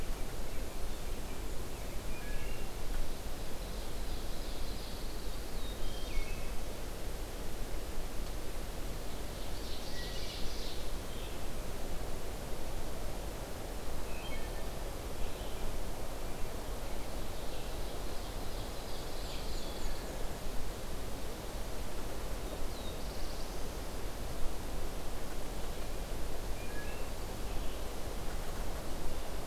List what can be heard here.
Wood Thrush, Ovenbird, Pine Warbler, Black-throated Blue Warbler, Red-eyed Vireo, Black-and-white Warbler